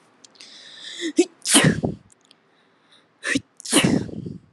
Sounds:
Sneeze